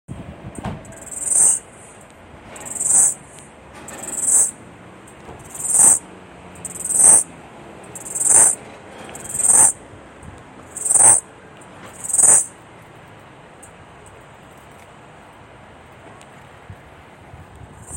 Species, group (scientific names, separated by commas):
Aleeta curvicosta, Cicadidae